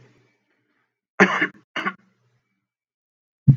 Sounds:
Cough